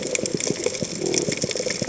{"label": "biophony", "recorder": "HydroMoth"}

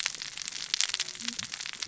{"label": "biophony, cascading saw", "recorder": "SoundTrap 600 or HydroMoth"}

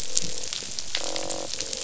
{"label": "biophony, croak", "recorder": "SoundTrap 500"}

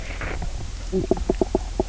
{"label": "biophony, knock croak", "recorder": "SoundTrap 300"}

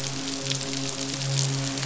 {"label": "biophony, midshipman", "recorder": "SoundTrap 500"}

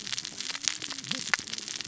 {"label": "biophony, cascading saw", "recorder": "SoundTrap 600 or HydroMoth"}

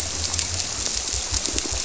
{"label": "biophony, squirrelfish (Holocentrus)", "recorder": "SoundTrap 300"}
{"label": "biophony", "recorder": "SoundTrap 300"}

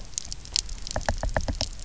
{"label": "biophony, knock", "recorder": "SoundTrap 300"}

